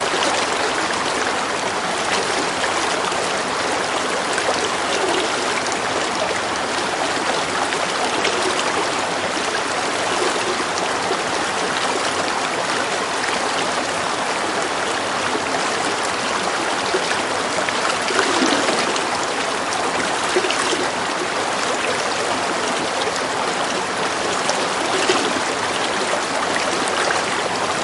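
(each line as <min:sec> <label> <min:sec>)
0:00.0 Loud water flowing in a river outdoors. 0:27.8
0:00.0 Wind blowing outdoors. 0:27.8
0:17.6 A quiet water blooping sound. 0:21.4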